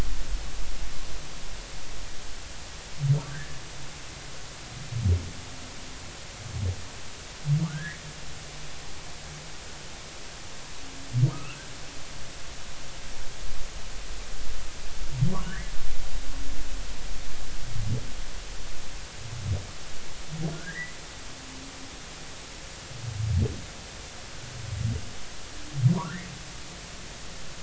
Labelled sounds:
3.3	3.6	humpback whale, 1.5 to 1.9 kHz
7.7	8.0	humpback whale, 1.4 to 2.0 kHz
11.3	11.6	humpback whale, 1.2 to 1.5 kHz
15.5	15.7	humpback whale, 1.4 to 2.2 kHz
20.5	21.0	humpback whale, 1.3 to 2.1 kHz
26.0	26.3	humpback whale, 0.90 to 2.2 kHz

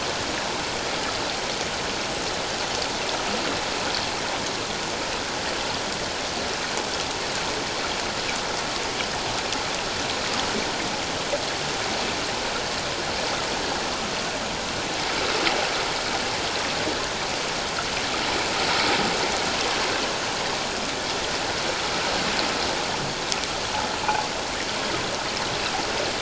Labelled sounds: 19.5	19.8	water noise, 0.97 to 1.2 kHz

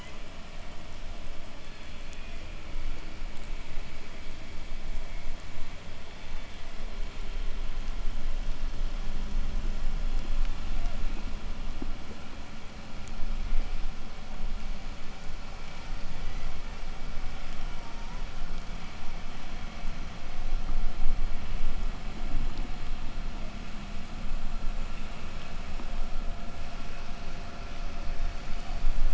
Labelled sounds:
1.3	3.2	killer whale, southern resident, 1.5 to 4.8 kHz
5.8	6.9	killer whale, southern resident, 1.1 to 4.0 kHz
10.6	11.2	killer whale, southern resident, 0.34 to 3.1 kHz
13.3	14.0	killer whale, southern resident, 0.45 to 2.6 kHz
15.5	18.4	killer whale, southern resident, 0 to 2.9 kHz

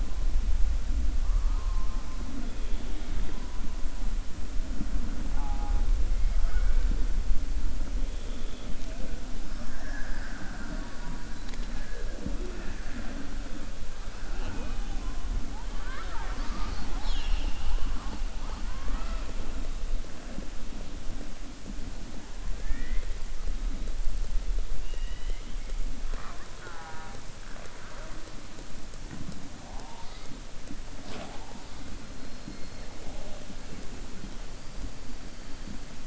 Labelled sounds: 24.8	25.6	killer whale, southern resident, 1.9 to 4.0 kHz

